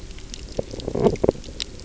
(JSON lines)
{"label": "biophony", "recorder": "SoundTrap 300"}